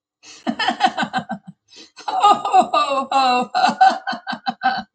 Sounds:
Laughter